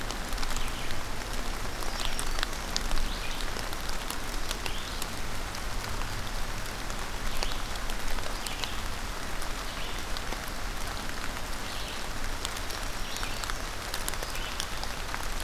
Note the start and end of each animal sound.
[1.49, 2.85] Black-throated Green Warbler (Setophaga virens)
[1.70, 15.44] Red-eyed Vireo (Vireo olivaceus)
[12.35, 13.79] Black-throated Green Warbler (Setophaga virens)

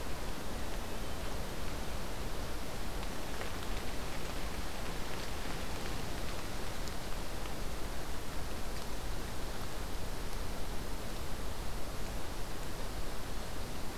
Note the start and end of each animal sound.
[0.65, 1.35] Hermit Thrush (Catharus guttatus)

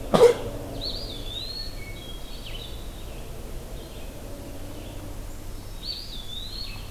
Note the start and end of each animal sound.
[0.00, 6.91] Red-eyed Vireo (Vireo olivaceus)
[0.70, 1.94] Eastern Wood-Pewee (Contopus virens)
[1.58, 3.03] Hermit Thrush (Catharus guttatus)
[5.77, 6.91] Eastern Wood-Pewee (Contopus virens)

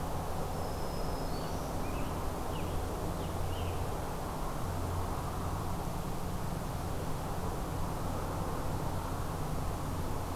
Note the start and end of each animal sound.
[0.31, 1.84] Black-throated Green Warbler (Setophaga virens)
[1.33, 3.97] Scarlet Tanager (Piranga olivacea)

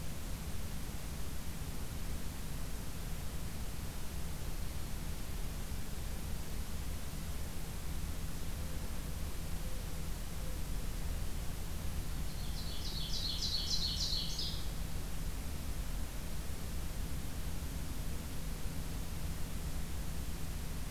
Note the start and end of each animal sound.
[4.30, 4.97] Black-throated Green Warbler (Setophaga virens)
[8.51, 10.70] Mourning Dove (Zenaida macroura)
[12.28, 14.64] Ovenbird (Seiurus aurocapilla)

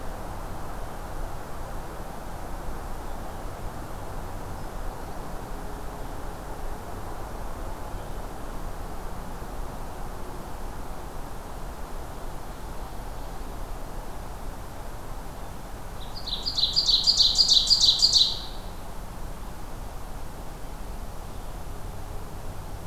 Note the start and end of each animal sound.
[15.96, 18.78] Ovenbird (Seiurus aurocapilla)

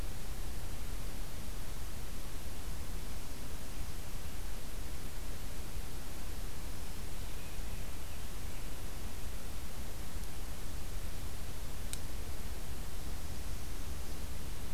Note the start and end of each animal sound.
[2.93, 3.50] Black-throated Green Warbler (Setophaga virens)
[6.54, 7.05] Black-throated Green Warbler (Setophaga virens)
[7.21, 8.80] Scarlet Tanager (Piranga olivacea)
[12.96, 14.18] Northern Parula (Setophaga americana)

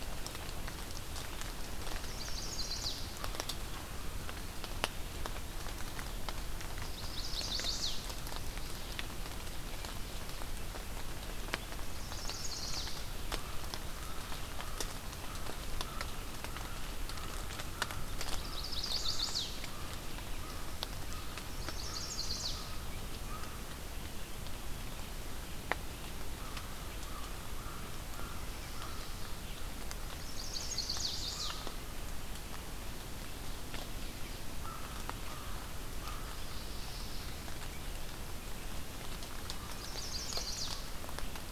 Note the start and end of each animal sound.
[1.91, 3.15] Chestnut-sided Warbler (Setophaga pensylvanica)
[6.78, 8.09] Chestnut-sided Warbler (Setophaga pensylvanica)
[11.79, 13.21] Chestnut-sided Warbler (Setophaga pensylvanica)
[12.83, 23.82] American Crow (Corvus brachyrhynchos)
[18.06, 19.63] Chestnut-sided Warbler (Setophaga pensylvanica)
[21.43, 22.69] Chestnut-sided Warbler (Setophaga pensylvanica)
[26.05, 31.90] American Crow (Corvus brachyrhynchos)
[29.79, 32.45] Chestnut-sided Warbler (Setophaga pensylvanica)
[34.57, 36.43] American Crow (Corvus brachyrhynchos)
[36.20, 37.50] Mourning Warbler (Geothlypis philadelphia)
[39.31, 41.05] Chestnut-sided Warbler (Setophaga pensylvanica)
[39.31, 40.58] American Crow (Corvus brachyrhynchos)

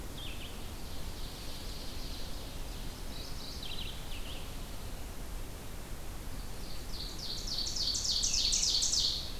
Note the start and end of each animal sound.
[0.00, 0.60] Red-eyed Vireo (Vireo olivaceus)
[0.65, 2.58] Ovenbird (Seiurus aurocapilla)
[3.02, 4.08] Mourning Warbler (Geothlypis philadelphia)
[4.05, 4.47] Red-eyed Vireo (Vireo olivaceus)
[6.28, 9.39] Ovenbird (Seiurus aurocapilla)

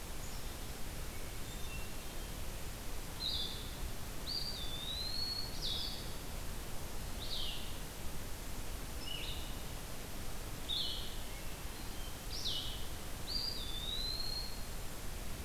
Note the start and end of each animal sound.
[0.17, 0.76] Black-capped Chickadee (Poecile atricapillus)
[0.99, 2.49] Hermit Thrush (Catharus guttatus)
[3.14, 12.83] Blue-headed Vireo (Vireo solitarius)
[4.17, 5.59] Eastern Wood-Pewee (Contopus virens)
[11.24, 12.12] Hermit Thrush (Catharus guttatus)
[13.22, 14.75] Eastern Wood-Pewee (Contopus virens)

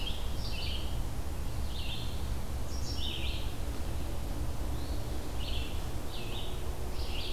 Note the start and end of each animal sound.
[0.00, 7.33] Red-eyed Vireo (Vireo olivaceus)
[4.70, 5.27] Eastern Phoebe (Sayornis phoebe)

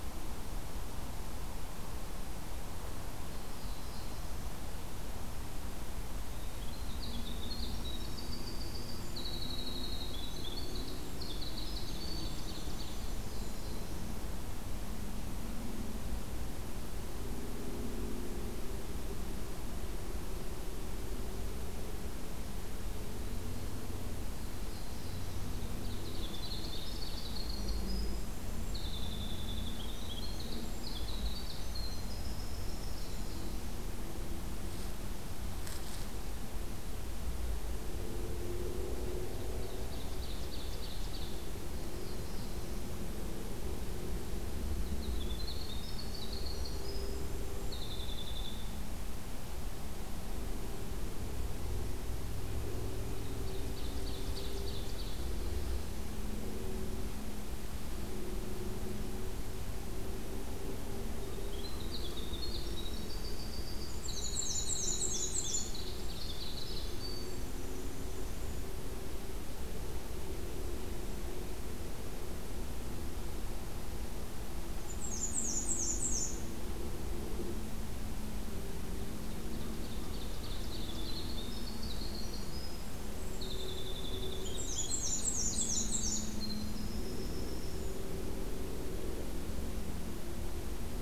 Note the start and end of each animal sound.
[3.08, 4.42] Black-throated Blue Warbler (Setophaga caerulescens)
[6.06, 13.23] Winter Wren (Troglodytes hiemalis)
[10.96, 13.39] Ovenbird (Seiurus aurocapilla)
[12.94, 14.30] Black-throated Blue Warbler (Setophaga caerulescens)
[24.19, 25.67] Black-throated Blue Warbler (Setophaga caerulescens)
[25.66, 27.52] Ovenbird (Seiurus aurocapilla)
[27.41, 28.87] Brown Creeper (Certhia americana)
[28.65, 33.84] Winter Wren (Troglodytes hiemalis)
[39.45, 41.27] Ovenbird (Seiurus aurocapilla)
[41.57, 43.05] Black-throated Blue Warbler (Setophaga caerulescens)
[44.33, 49.03] Winter Wren (Troglodytes hiemalis)
[52.88, 55.67] Ovenbird (Seiurus aurocapilla)
[60.98, 68.66] Winter Wren (Troglodytes hiemalis)
[63.63, 65.94] Black-and-white Warbler (Mniotilta varia)
[74.53, 76.50] Black-and-white Warbler (Mniotilta varia)
[79.21, 81.26] Ovenbird (Seiurus aurocapilla)
[80.52, 88.14] Winter Wren (Troglodytes hiemalis)
[84.20, 86.42] Black-and-white Warbler (Mniotilta varia)

